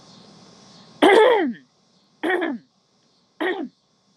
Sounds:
Throat clearing